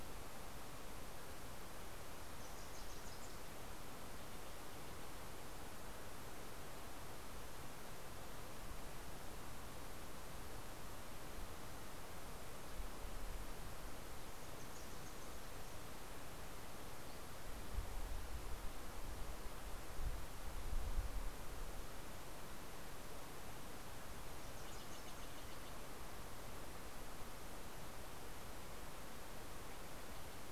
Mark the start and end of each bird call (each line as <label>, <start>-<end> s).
Wilson's Warbler (Cardellina pusilla), 1.4-4.2 s
Wilson's Warbler (Cardellina pusilla), 13.9-16.2 s
Steller's Jay (Cyanocitta stelleri), 24.0-26.7 s